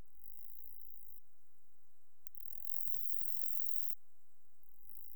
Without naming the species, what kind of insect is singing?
orthopteran